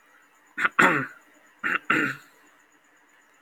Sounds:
Throat clearing